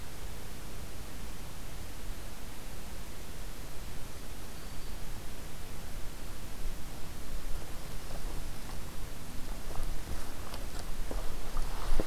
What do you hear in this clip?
Black-throated Green Warbler